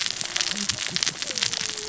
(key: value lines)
label: biophony, cascading saw
recorder: SoundTrap 600 or HydroMoth